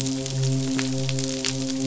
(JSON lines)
{"label": "biophony, midshipman", "recorder": "SoundTrap 500"}